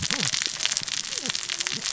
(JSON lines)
{"label": "biophony, cascading saw", "recorder": "SoundTrap 600 or HydroMoth"}